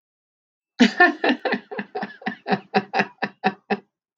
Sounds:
Laughter